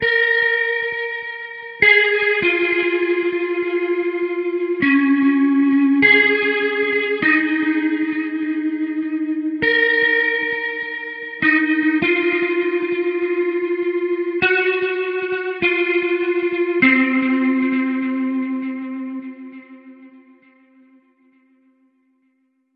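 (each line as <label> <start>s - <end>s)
A guitar plays a rhythmic pattern. 0.0s - 20.6s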